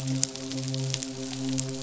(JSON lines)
{"label": "biophony, midshipman", "recorder": "SoundTrap 500"}